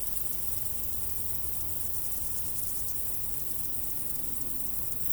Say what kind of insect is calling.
orthopteran